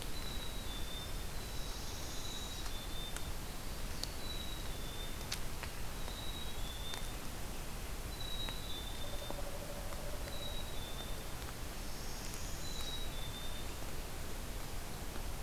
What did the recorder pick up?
Black-capped Chickadee, Northern Parula